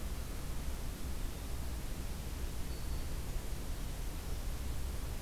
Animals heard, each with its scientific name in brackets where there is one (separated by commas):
Black-throated Green Warbler (Setophaga virens)